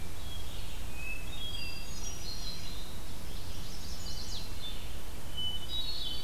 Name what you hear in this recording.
Hermit Thrush, Red-eyed Vireo, Chestnut-sided Warbler